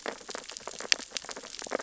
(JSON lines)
{"label": "biophony, sea urchins (Echinidae)", "recorder": "SoundTrap 600 or HydroMoth"}